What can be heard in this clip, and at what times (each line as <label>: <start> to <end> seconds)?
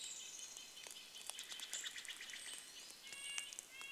Pine Siskin call: 0 to 4 seconds
Red-breasted Nuthatch song: 0 to 4 seconds
Steller's Jay call: 0 to 4 seconds
rain: 0 to 4 seconds